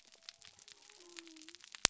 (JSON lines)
{"label": "biophony", "recorder": "SoundTrap 300"}